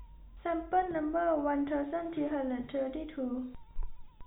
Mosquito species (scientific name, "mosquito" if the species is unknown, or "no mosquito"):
no mosquito